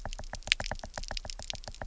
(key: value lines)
label: biophony, knock
recorder: SoundTrap 300